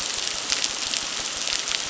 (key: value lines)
label: biophony, crackle
recorder: SoundTrap 600